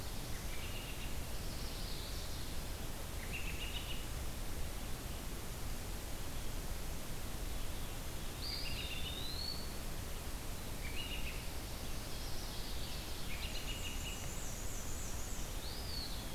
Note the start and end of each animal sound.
[0.27, 1.08] American Robin (Turdus migratorius)
[1.29, 2.48] Chestnut-sided Warbler (Setophaga pensylvanica)
[3.04, 4.15] American Robin (Turdus migratorius)
[8.24, 9.72] Eastern Wood-Pewee (Contopus virens)
[8.40, 9.25] American Robin (Turdus migratorius)
[10.70, 11.39] American Robin (Turdus migratorius)
[11.53, 13.03] Yellow-rumped Warbler (Setophaga coronata)
[13.12, 14.23] American Robin (Turdus migratorius)
[13.46, 15.59] Black-and-white Warbler (Mniotilta varia)
[15.52, 16.34] Eastern Wood-Pewee (Contopus virens)

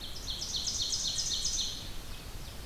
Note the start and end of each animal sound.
[0.00, 2.65] Ovenbird (Seiurus aurocapilla)
[0.00, 2.65] Red-eyed Vireo (Vireo olivaceus)

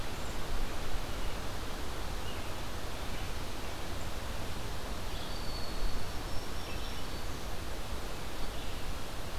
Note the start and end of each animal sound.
[4.99, 6.07] Eastern Wood-Pewee (Contopus virens)
[5.96, 7.38] Black-throated Green Warbler (Setophaga virens)

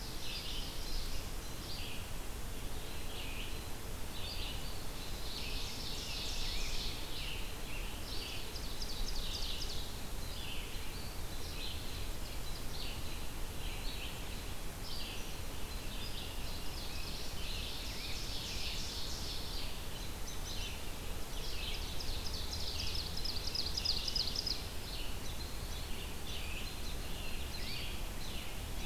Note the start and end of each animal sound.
[0.00, 1.27] Ovenbird (Seiurus aurocapilla)
[0.00, 23.02] Red-eyed Vireo (Vireo olivaceus)
[4.66, 9.79] Ovenbird (Seiurus aurocapilla)
[5.20, 8.01] Scarlet Tanager (Piranga olivacea)
[10.85, 12.23] Eastern Wood-Pewee (Contopus virens)
[15.92, 19.77] Ovenbird (Seiurus aurocapilla)
[19.96, 20.90] American Robin (Turdus migratorius)
[21.03, 24.79] Ovenbird (Seiurus aurocapilla)
[23.75, 28.85] Red-eyed Vireo (Vireo olivaceus)
[25.13, 28.85] American Robin (Turdus migratorius)
[25.67, 28.23] Scarlet Tanager (Piranga olivacea)

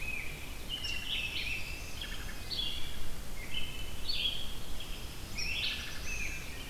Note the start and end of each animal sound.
[0.00, 1.84] American Robin (Turdus migratorius)
[0.00, 6.70] Red-eyed Vireo (Vireo olivaceus)
[0.60, 2.06] Black-throated Green Warbler (Setophaga virens)
[1.25, 2.72] Pine Warbler (Setophaga pinus)
[1.57, 2.54] Brown Creeper (Certhia americana)
[1.89, 2.50] Wood Thrush (Hylocichla mustelina)
[3.31, 4.02] American Robin (Turdus migratorius)
[4.75, 6.67] Black-throated Blue Warbler (Setophaga caerulescens)
[5.29, 6.70] American Robin (Turdus migratorius)
[5.48, 6.06] Wood Thrush (Hylocichla mustelina)

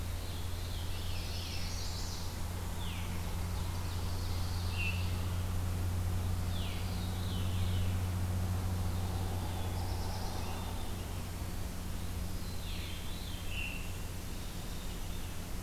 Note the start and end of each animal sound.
[0.00, 1.80] Veery (Catharus fuscescens)
[0.86, 2.58] Chestnut-sided Warbler (Setophaga pensylvanica)
[3.33, 5.19] Ovenbird (Seiurus aurocapilla)
[6.73, 8.01] Veery (Catharus fuscescens)
[8.62, 11.16] Veery (Catharus fuscescens)
[9.10, 10.57] Black-throated Blue Warbler (Setophaga caerulescens)
[12.26, 14.07] Veery (Catharus fuscescens)

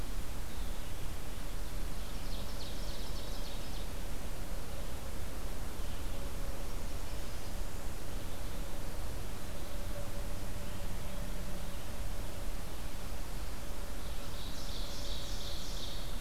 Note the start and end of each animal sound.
[1.82, 4.08] Ovenbird (Seiurus aurocapilla)
[13.98, 16.20] Ovenbird (Seiurus aurocapilla)

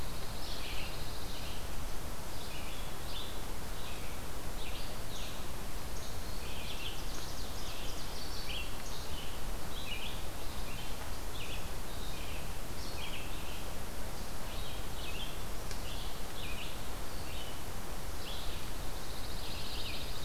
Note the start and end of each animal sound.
[0.00, 1.75] Pine Warbler (Setophaga pinus)
[0.00, 20.25] Red-eyed Vireo (Vireo olivaceus)
[6.22, 8.82] Ovenbird (Seiurus aurocapilla)
[18.70, 20.25] Pine Warbler (Setophaga pinus)

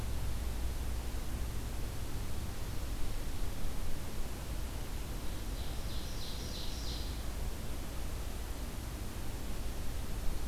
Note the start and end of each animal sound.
[4.87, 7.39] Ovenbird (Seiurus aurocapilla)

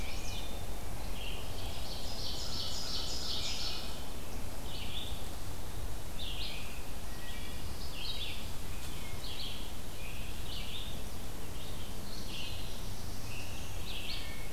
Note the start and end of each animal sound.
[0.00, 14.52] Red-eyed Vireo (Vireo olivaceus)
[0.11, 0.89] Wood Thrush (Hylocichla mustelina)
[1.60, 3.84] Ovenbird (Seiurus aurocapilla)
[6.97, 7.74] Wood Thrush (Hylocichla mustelina)
[11.90, 14.00] Black-throated Blue Warbler (Setophaga caerulescens)
[14.01, 14.52] Wood Thrush (Hylocichla mustelina)

